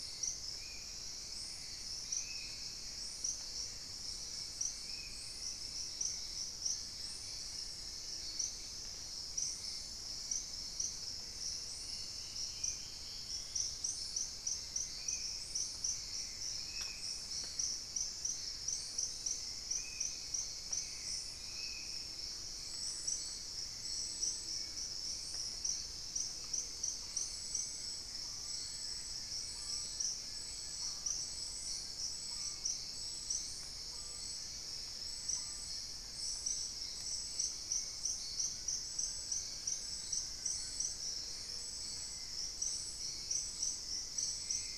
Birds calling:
Plain-winged Antshrike (Thamnophilus schistaceus), unidentified bird, Amazonian Motmot (Momotus momota), Rufous-fronted Antthrush (Formicarius rufifrons), Ruddy Quail-Dove (Geotrygon montana), Wing-barred Piprites (Piprites chloris), Gray Antbird (Cercomacra cinerascens), Hauxwell's Thrush (Turdus hauxwelli), Spot-winged Antshrike (Pygiptila stellaris), Dusky-throated Antshrike (Thamnomanes ardesiacus)

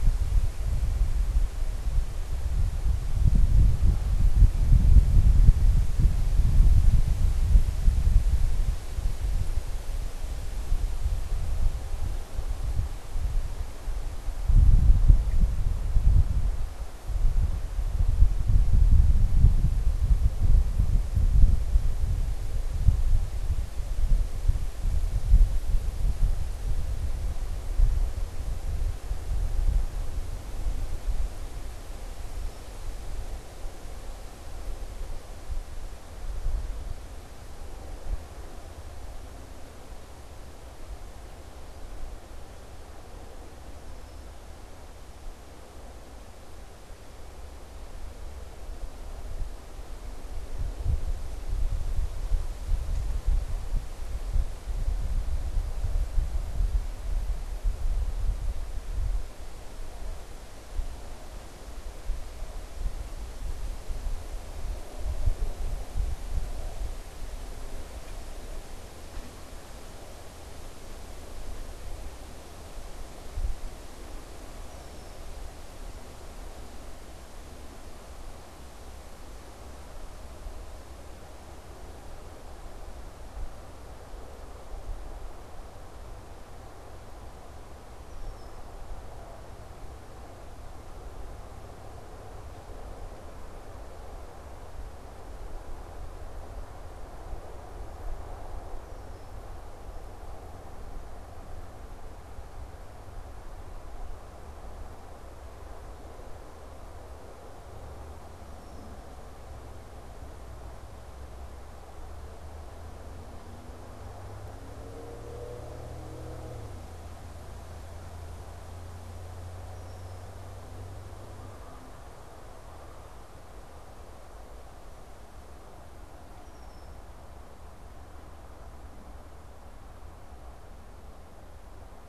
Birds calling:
unidentified bird, Red-winged Blackbird (Agelaius phoeniceus)

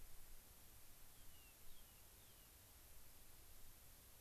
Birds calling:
Rock Wren (Salpinctes obsoletus)

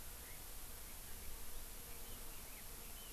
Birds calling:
Hawaii Amakihi (Chlorodrepanis virens)

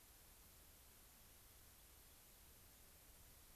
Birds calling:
Rock Wren (Salpinctes obsoletus)

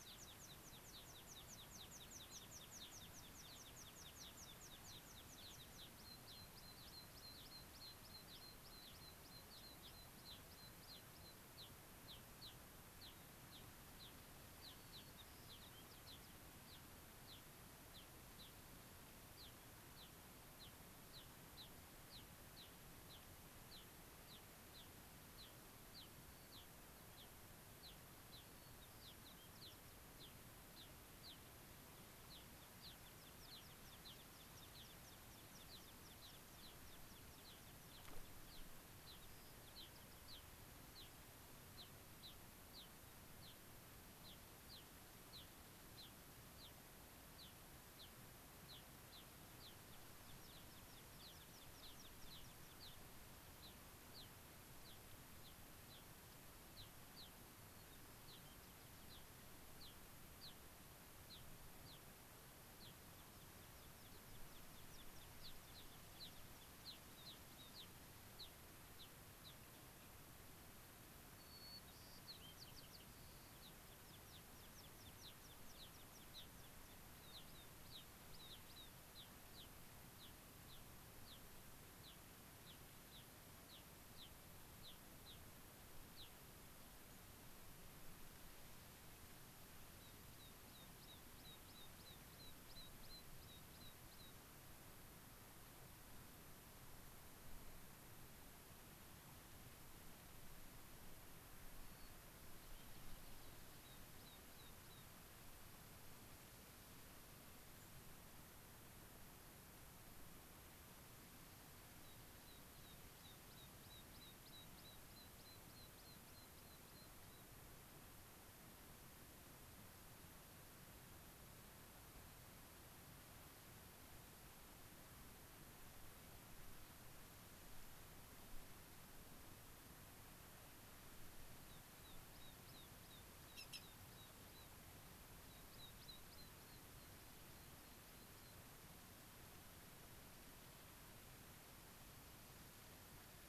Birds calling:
White-crowned Sparrow (Zonotrichia leucophrys), unidentified bird, Gray-crowned Rosy-Finch (Leucosticte tephrocotis), American Pipit (Anthus rubescens)

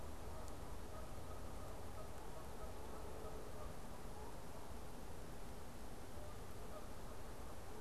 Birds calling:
Canada Goose (Branta canadensis)

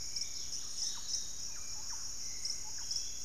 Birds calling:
Thrush-like Wren (Campylorhynchus turdinus), Piratic Flycatcher (Legatus leucophaius), Dusky-capped Greenlet (Pachysylvia hypoxantha), Hauxwell's Thrush (Turdus hauxwelli)

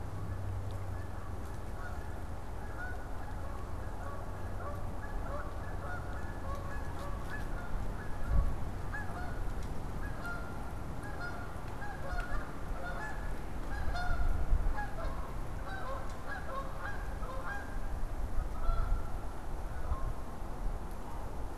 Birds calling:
Canada Goose (Branta canadensis)

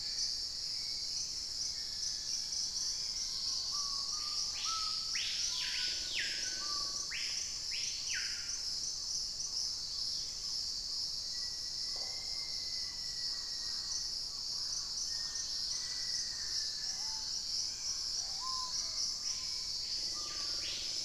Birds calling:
Black-tailed Trogon (Trogon melanurus), Dusky-capped Greenlet (Pachysylvia hypoxantha), Wing-barred Piprites (Piprites chloris), Red-necked Woodpecker (Campephilus rubricollis), Screaming Piha (Lipaugus vociferans), Hauxwell's Thrush (Turdus hauxwelli), Black-faced Antthrush (Formicarius analis), Dusky-throated Antshrike (Thamnomanes ardesiacus), Chestnut-winged Foliage-gleaner (Dendroma erythroptera)

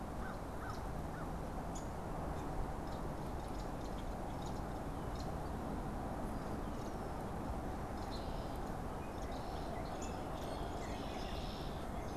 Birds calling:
Blue Jay (Cyanocitta cristata), American Crow (Corvus brachyrhynchos), Downy Woodpecker (Dryobates pubescens), unidentified bird

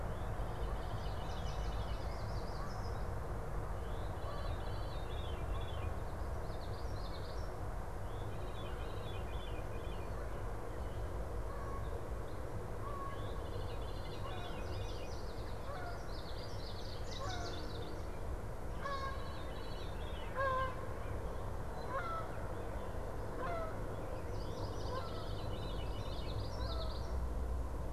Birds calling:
Common Yellowthroat (Geothlypis trichas), Yellow Warbler (Setophaga petechia), Canada Goose (Branta canadensis), Veery (Catharus fuscescens), Chestnut-sided Warbler (Setophaga pensylvanica)

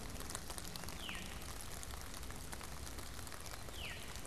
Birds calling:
Veery (Catharus fuscescens)

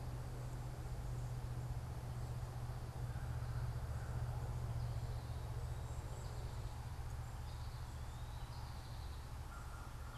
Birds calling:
American Goldfinch (Spinus tristis)

